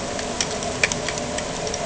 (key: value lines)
label: anthrophony, boat engine
recorder: HydroMoth